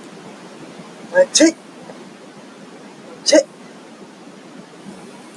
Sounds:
Sneeze